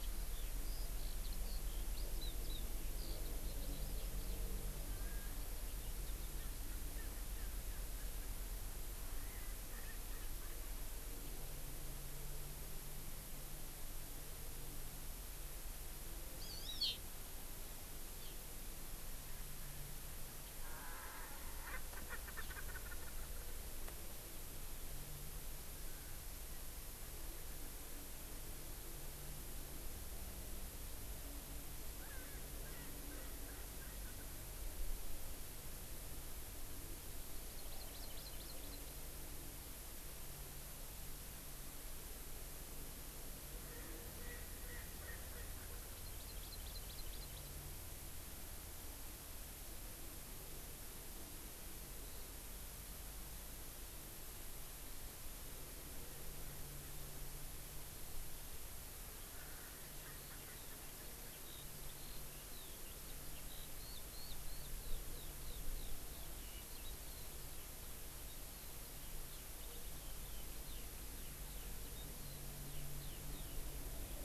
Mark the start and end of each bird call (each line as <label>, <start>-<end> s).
Eurasian Skylark (Alauda arvensis), 0.0-4.4 s
Erckel's Francolin (Pternistis erckelii), 6.3-8.4 s
Erckel's Francolin (Pternistis erckelii), 9.2-10.6 s
Hawaii Amakihi (Chlorodrepanis virens), 16.4-17.0 s
Erckel's Francolin (Pternistis erckelii), 20.6-23.3 s
Erckel's Francolin (Pternistis erckelii), 32.0-34.4 s
Hawaii Amakihi (Chlorodrepanis virens), 37.5-39.0 s
Erckel's Francolin (Pternistis erckelii), 43.4-46.1 s
Hawaii Amakihi (Chlorodrepanis virens), 45.9-47.5 s
Erckel's Francolin (Pternistis erckelii), 59.3-61.4 s
Eurasian Skylark (Alauda arvensis), 60.1-73.5 s